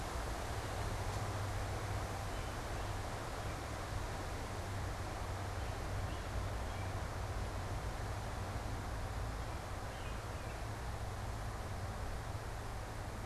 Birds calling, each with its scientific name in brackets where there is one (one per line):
American Robin (Turdus migratorius)